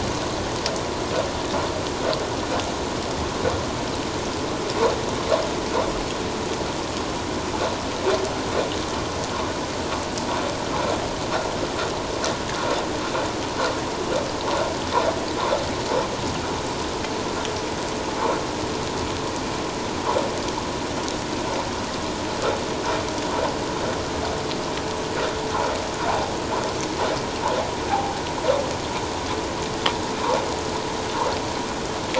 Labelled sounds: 27.9	28.1	vessel noise, 0.78 to 0.94 kHz

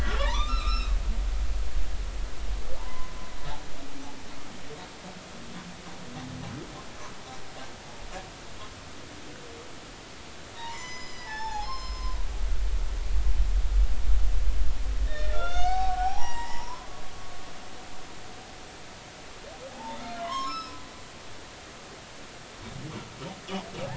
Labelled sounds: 0.0	1.0	humpback whale, 0.83 to 5.5 kHz
2.8	3.1	humpback whale, 0.86 to 1.1 kHz
10.6	12.2	humpback whale, 0.80 to 6.1 kHz
15.1	16.9	humpback whale, 0.80 to 6.0 kHz
19.7	20.8	humpback whale, 0.80 to 5.6 kHz

